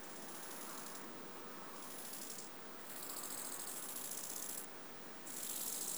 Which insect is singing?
Chorthippus eisentrauti, an orthopteran